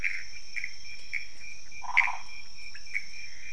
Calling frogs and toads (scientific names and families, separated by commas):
Pithecopus azureus (Hylidae), Phyllomedusa sauvagii (Hylidae), Leptodactylus podicipinus (Leptodactylidae)